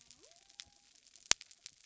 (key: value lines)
label: biophony
recorder: SoundTrap 300